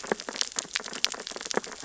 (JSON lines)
{"label": "biophony, sea urchins (Echinidae)", "recorder": "SoundTrap 600 or HydroMoth"}